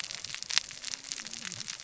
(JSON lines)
{"label": "biophony, cascading saw", "recorder": "SoundTrap 600 or HydroMoth"}